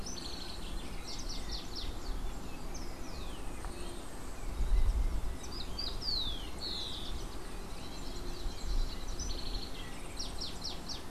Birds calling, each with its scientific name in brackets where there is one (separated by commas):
Rufous-collared Sparrow (Zonotrichia capensis), House Wren (Troglodytes aedon)